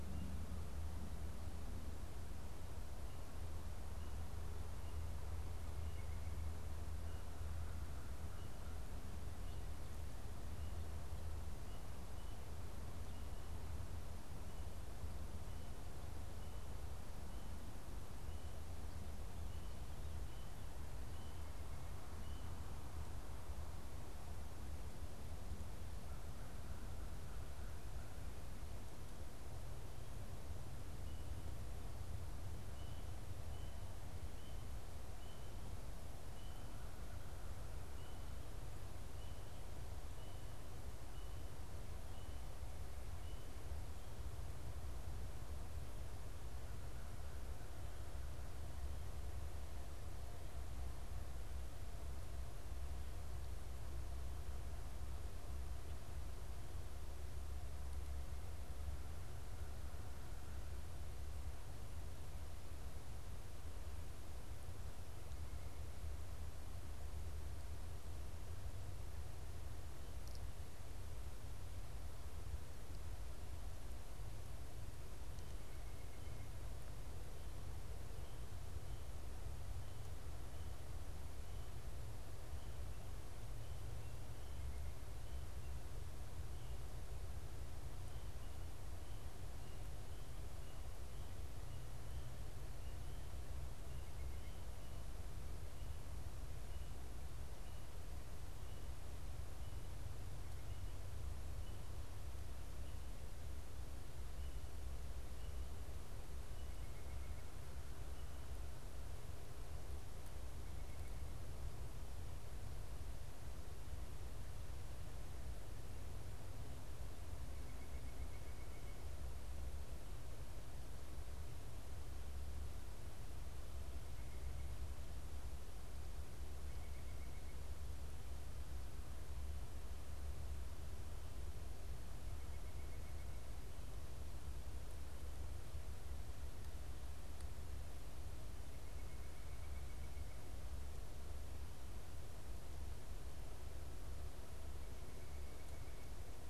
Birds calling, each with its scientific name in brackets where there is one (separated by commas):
American Crow (Corvus brachyrhynchos), White-breasted Nuthatch (Sitta carolinensis)